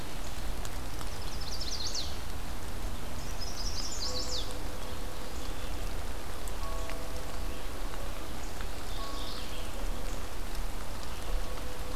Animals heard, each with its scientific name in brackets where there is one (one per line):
Chestnut-sided Warbler (Setophaga pensylvanica)
Mourning Warbler (Geothlypis philadelphia)